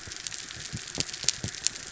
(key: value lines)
label: biophony
recorder: SoundTrap 300